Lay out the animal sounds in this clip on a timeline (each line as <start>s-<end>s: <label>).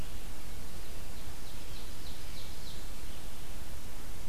1.0s-3.0s: Ovenbird (Seiurus aurocapilla)
1.4s-4.3s: Red-eyed Vireo (Vireo olivaceus)